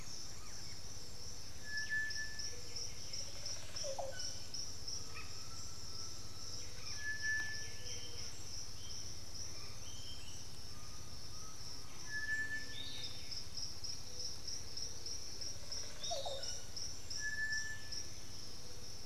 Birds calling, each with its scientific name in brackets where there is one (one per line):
unidentified bird
White-winged Becard (Pachyramphus polychopterus)
Piratic Flycatcher (Legatus leucophaius)
Olive Oropendola (Psarocolius bifasciatus)
Undulated Tinamou (Crypturellus undulatus)